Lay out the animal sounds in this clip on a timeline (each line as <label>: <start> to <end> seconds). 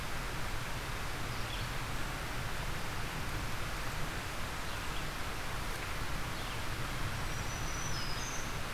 Black-throated Green Warbler (Setophaga virens): 7.2 to 8.6 seconds